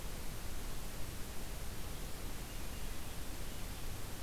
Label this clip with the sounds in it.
forest ambience